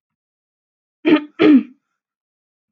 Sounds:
Throat clearing